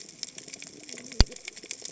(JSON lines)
{"label": "biophony, cascading saw", "recorder": "HydroMoth"}